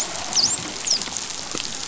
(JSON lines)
{"label": "biophony, dolphin", "recorder": "SoundTrap 500"}